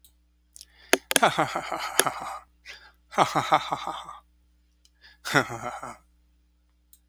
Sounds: Laughter